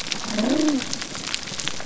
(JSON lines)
{"label": "biophony", "recorder": "SoundTrap 300"}